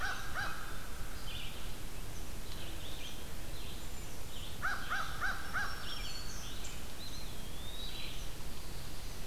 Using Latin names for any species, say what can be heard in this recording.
Corvus brachyrhynchos, Vireo olivaceus, Bombycilla cedrorum, Setophaga virens, Contopus virens